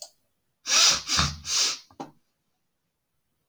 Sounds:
Sniff